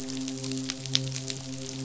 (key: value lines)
label: biophony, midshipman
recorder: SoundTrap 500